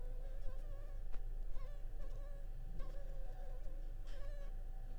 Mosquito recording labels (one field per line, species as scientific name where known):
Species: Anopheles funestus s.s.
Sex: female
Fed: unfed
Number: one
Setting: cup